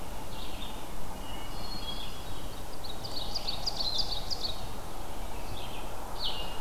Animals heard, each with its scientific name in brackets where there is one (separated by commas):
Ovenbird (Seiurus aurocapilla), Hermit Thrush (Catharus guttatus), Red-eyed Vireo (Vireo olivaceus)